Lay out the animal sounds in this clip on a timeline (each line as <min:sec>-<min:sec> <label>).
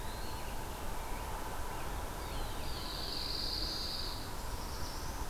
0:00.0-0:00.7 Eastern Wood-Pewee (Contopus virens)
0:00.2-0:03.4 Rose-breasted Grosbeak (Pheucticus ludovicianus)
0:02.0-0:05.3 Black-throated Blue Warbler (Setophaga caerulescens)
0:02.3-0:03.4 Veery (Catharus fuscescens)
0:02.6-0:04.3 Pine Warbler (Setophaga pinus)